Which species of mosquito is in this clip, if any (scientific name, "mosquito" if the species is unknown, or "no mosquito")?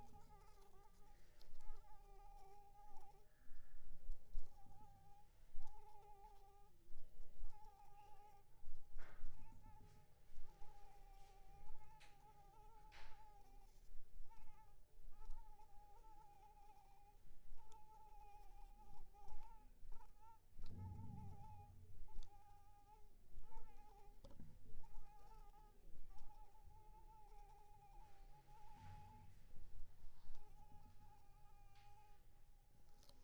Anopheles arabiensis